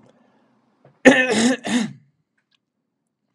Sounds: Throat clearing